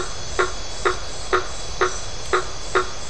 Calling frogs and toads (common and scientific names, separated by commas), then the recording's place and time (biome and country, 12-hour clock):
blacksmith tree frog (Boana faber)
Atlantic Forest, Brazil, 9:30pm